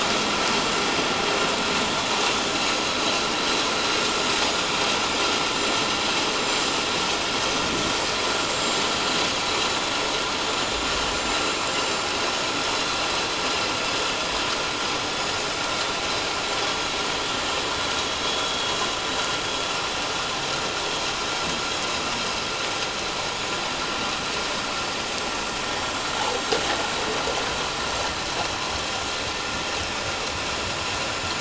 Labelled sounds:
4.4	4.7	vessel noise, 6.8 to 7.0 kHz
5.0	5.9	vessel noise, 7.0 to 7.4 kHz
6.4	6.8	vessel noise, 7.2 to 7.4 kHz
8.5	8.8	vessel noise, 7.2 to 7.4 kHz
9.5	9.8	vessel noise, 7.0 to 7.2 kHz
10.4	12.7	vessel noise, 6.9 to 7.3 kHz
15.2	15.5	vessel noise, 6.9 to 7.0 kHz
18.2	18.7	vessel noise, 3.3 to 3.4 kHz
20.1	20.4	vessel noise, 6.8 to 7.0 kHz
25.9	26.6	vessel noise, 7.3 to 7.5 kHz
30.3	30.6	vessel noise, 7.1 to 7.2 kHz

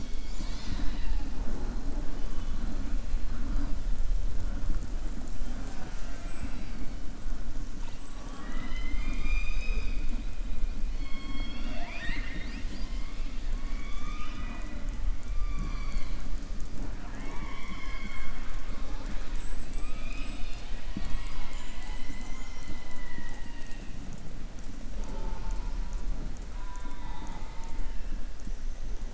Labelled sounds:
13.7	14.8	killer whale, southern resident, 0.70 to 7.0 kHz
26.5	28.1	killer whale, southern resident, 0.77 to 3.9 kHz

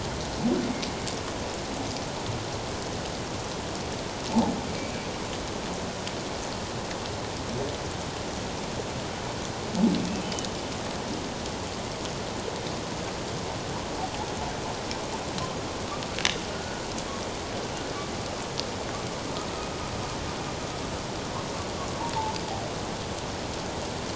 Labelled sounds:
16.5	16.8	humpback whale, 1.4 to 1.5 kHz

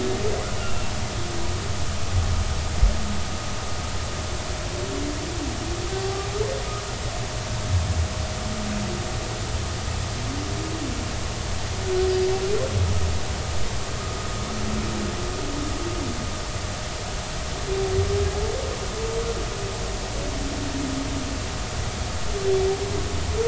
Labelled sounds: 0.5	0.8	humpback whale, 2.7 to 3.0 kHz

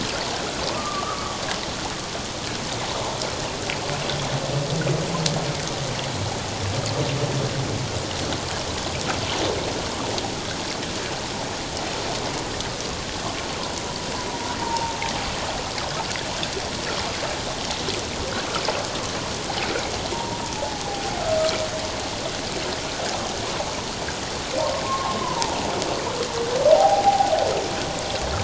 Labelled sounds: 0.7	1.4	humpback whale, 1.0 to 1.3 kHz
14.6	14.9	humpback whale, 0.84 to 1.0 kHz
20.1	21.2	humpback whale, 0.78 to 1.0 kHz
24.8	25.6	humpback whale, 0.81 to 1.2 kHz
26.7	27.3	humpback whale, 0.78 to 0.94 kHz

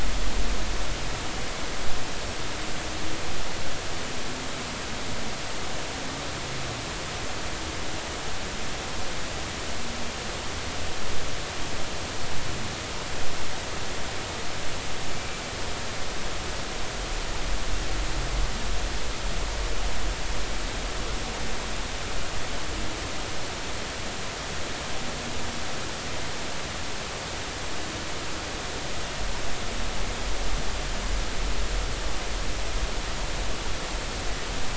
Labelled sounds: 15.1	15.4	killer whale, northern resident, 2.2 to 2.4 kHz

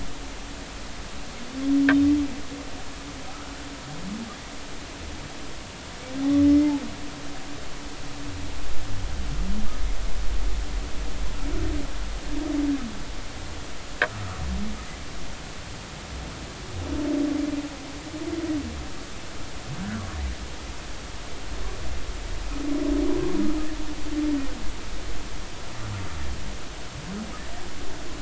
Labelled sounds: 3.3	3.5	humpback whale, 1.2 to 1.5 kHz
6.5	6.7	humpback whale, 2.0 to 2.1 kHz

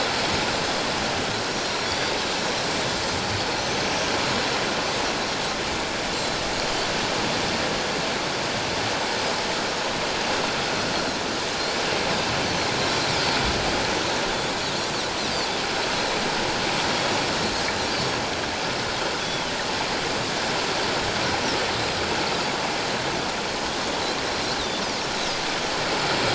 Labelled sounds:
1.5	2.1	Pacific white-sided dolphin, 3.3 to 5.7 kHz
3.3	3.9	Pacific white-sided dolphin, 4.2 to 6.3 kHz
19.2	19.5	Pacific white-sided dolphin, 2.9 to 3.5 kHz
24.6	24.8	Pacific white-sided dolphin, 3.4 to 4.1 kHz

